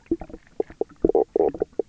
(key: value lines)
label: biophony, knock croak
recorder: SoundTrap 300